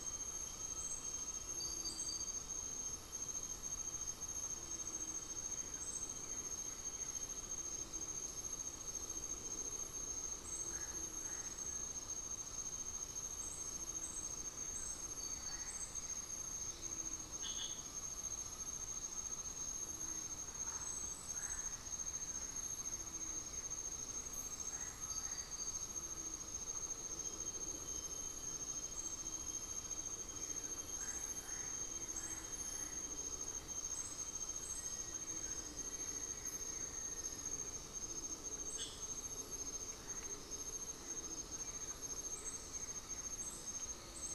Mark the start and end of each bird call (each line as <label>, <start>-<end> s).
unidentified bird, 15.2-17.8 s
Undulated Tinamou (Crypturellus undulatus), 17.8-19.8 s
Blue-gray Saltator (Saltator coerulescens), 21.5-33.7 s
Undulated Tinamou (Crypturellus undulatus), 24.2-28.4 s
Black-faced Antthrush (Formicarius analis), 34.5-38.1 s
Blue-gray Saltator (Saltator coerulescens), 40.0-44.3 s
Undulated Tinamou (Crypturellus undulatus), 40.6-44.3 s
Goeldi's Antbird (Akletos goeldii), 40.9-43.5 s